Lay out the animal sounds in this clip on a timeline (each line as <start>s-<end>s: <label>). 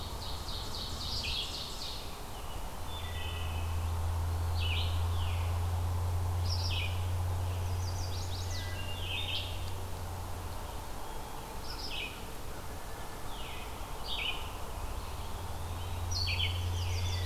0.0s-2.3s: Wood Thrush (Hylocichla mustelina)
0.0s-17.3s: Red-eyed Vireo (Vireo olivaceus)
2.8s-4.1s: Wood Thrush (Hylocichla mustelina)
5.0s-5.5s: Veery (Catharus fuscescens)
7.5s-8.8s: Chestnut-sided Warbler (Setophaga pensylvanica)
8.5s-9.2s: Wood Thrush (Hylocichla mustelina)
13.2s-13.7s: Veery (Catharus fuscescens)
14.5s-16.6s: Eastern Wood-Pewee (Contopus virens)
16.5s-17.3s: Chestnut-sided Warbler (Setophaga pensylvanica)